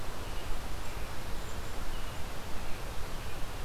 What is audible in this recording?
American Robin